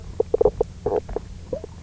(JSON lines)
{"label": "biophony, knock croak", "recorder": "SoundTrap 300"}